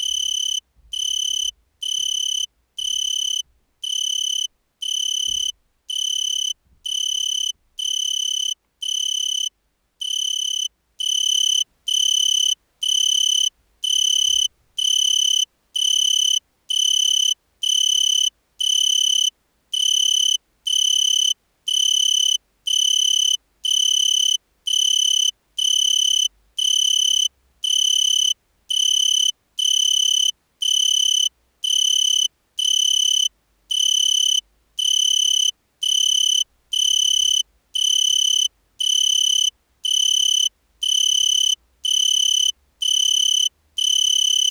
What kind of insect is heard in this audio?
orthopteran